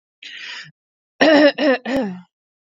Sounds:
Throat clearing